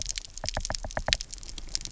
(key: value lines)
label: biophony, knock
recorder: SoundTrap 300